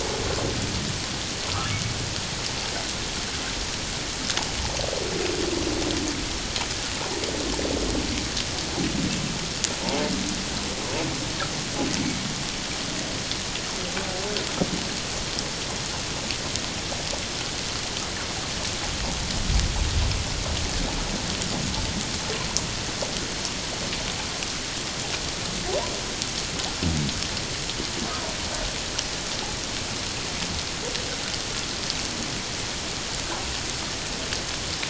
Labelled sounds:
1.5	1.7	humpback whale, 1.1 to 1.4 kHz
12.0	12.2	humpback whale, 2.2 to 2.3 kHz

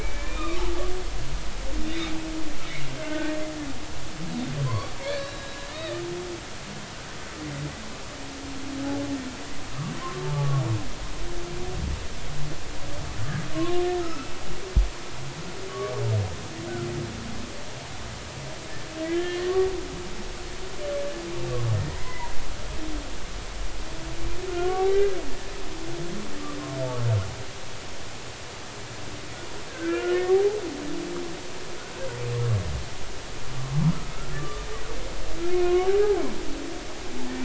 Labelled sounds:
0.0	0.7	humpback whale, 1.1 to 2.6 kHz
1.9	2.1	humpback whale, 3.5 to 4.0 kHz
3.0	3.4	humpback whale, 1.4 to 1.9 kHz
4.6	6.0	humpback whale, 0.96 to 4.7 kHz
10.2	10.6	humpback whale, 0.80 to 1.2 kHz
14.0	14.4	humpback whale, 1.2 to 2.7 kHz
19.0	19.7	humpback whale, 1.0 to 3.3 kHz
21.9	22.3	humpback whale, 0.90 to 2.1 kHz
24.5	25.1	humpback whale, 1.0 to 2.0 kHz
29.7	30.3	humpback whale, 1.3 to 3.0 kHz
34.1	34.7	humpback whale, 1.1 to 1.4 kHz
35.4	35.9	humpback whale, 1.0 to 2.5 kHz

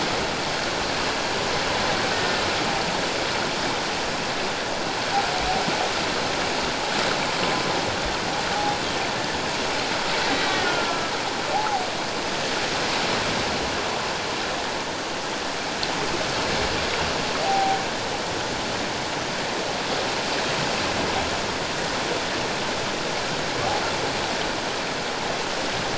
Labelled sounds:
10.3	11.1	killer whale, Bigg's (transient), 1.3 to 3.9 kHz
11.5	11.8	humpback whale, 0.78 to 0.91 kHz
17.4	17.8	humpback whale, 0.78 to 0.84 kHz

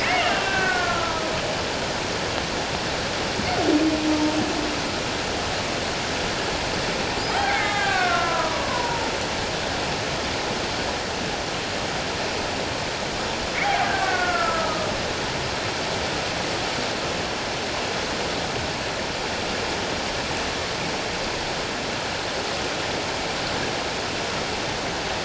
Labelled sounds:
0.0	1.3	killer whale, Bigg's (transient), 1.1 to 3.0 kHz
7.3	9.1	killer whale, Bigg's (transient), 0.78 to 3.3 kHz
13.9	14.9	killer whale, Bigg's (transient), 1.0 to 1.7 kHz

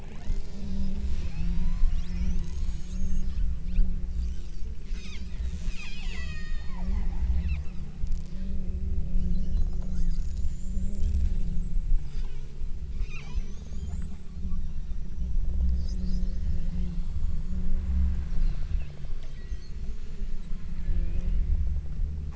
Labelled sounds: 0.1	2.1	killer whale, southern Alaska resident, 0.68 to 8.0 kHz
5.0	6.9	killer whale, southern Alaska resident, 0.55 to 8.0 kHz
7.3	7.9	killer whale, southern Alaska resident, 0.96 to 5.5 kHz
13.0	13.6	killer whale, southern Alaska resident, 0.68 to 6.6 kHz
19.0	19.7	killer whale, southern Alaska resident, 1.7 to 5.0 kHz
21.0	21.6	killer whale, southern Alaska resident, 2.2 to 4.8 kHz

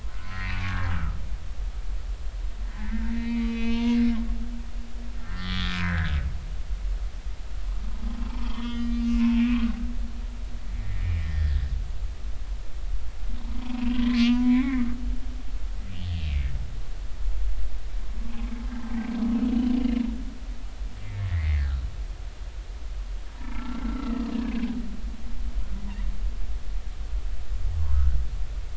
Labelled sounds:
0.3	0.6	humpback whale, 1.8 to 2.0 kHz
2.7	4.0	humpback whale, 0.90 to 3.0 kHz
5.2	6.2	humpback whale, 1.2 to 3.8 kHz
8.4	9.7	humpback whale, 0.93 to 4.8 kHz
10.8	11.6	humpback whale, 1.5 to 2.1 kHz
13.4	14.8	humpback whale, 0.86 to 3.3 kHz
21.0	21.8	humpback whale, 1.2 to 2.4 kHz
22.3	24.2	humpback whale, 0.90 to 2.3 kHz
27.9	28.2	humpback whale, 1.2 to 1.6 kHz

